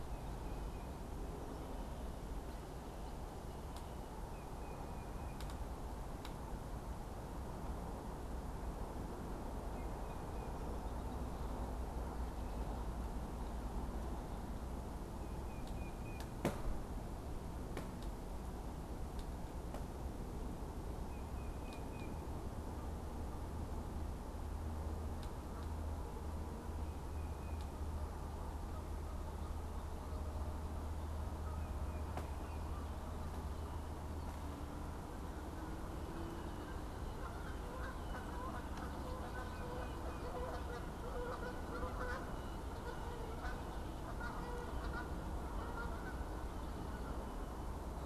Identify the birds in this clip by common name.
Tufted Titmouse, Canada Goose, Red-winged Blackbird